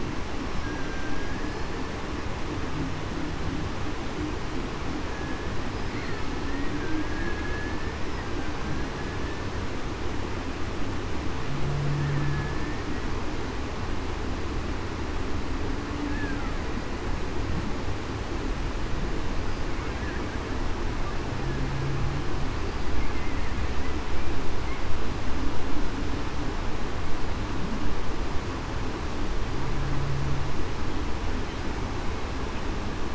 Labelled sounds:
0.6	1.8	killer whale, Bigg's (transient), 1.5 to 5.9 kHz
6.8	8.0	killer whale, Bigg's (transient), 1.5 to 1.8 kHz
12.1	12.8	killer whale, Bigg's (transient), 1.7 to 1.8 kHz

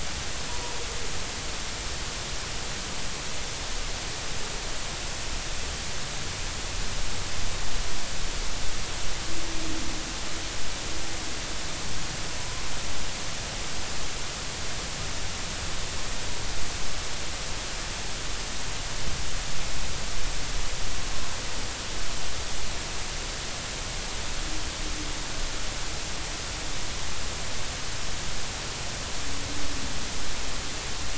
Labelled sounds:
12.4	12.6	humpback whale, 0.96 to 1.1 kHz

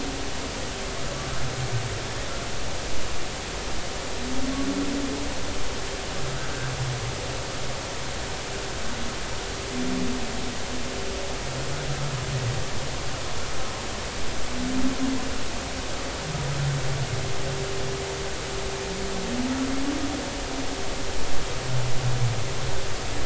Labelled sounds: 6.4	6.7	humpback whale, 1.4 to 1.6 kHz

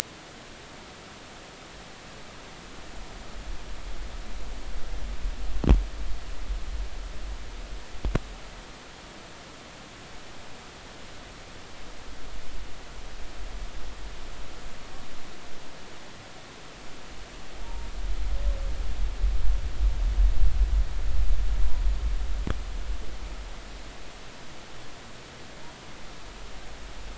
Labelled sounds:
17.6	17.9	humpback whale, 0.86 to 0.99 kHz

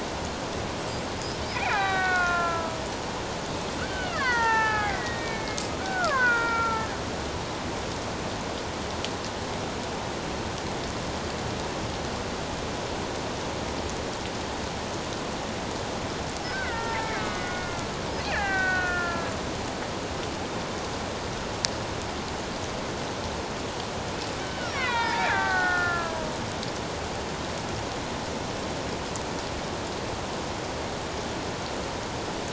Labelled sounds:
1.2	2.8	killer whale, Bigg's (transient), 0.78 to 5.3 kHz
3.8	6.9	killer whale, Bigg's (transient), 0.78 to 4.2 kHz
16.5	17.9	killer whale, Bigg's (transient), 0.84 to 2.3 kHz
18.3	19.4	killer whale, Bigg's (transient), 0.78 to 2.8 kHz
24.4	26.3	killer whale, Bigg's (transient), 0.84 to 4.8 kHz

